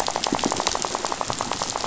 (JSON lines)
{"label": "biophony, rattle", "recorder": "SoundTrap 500"}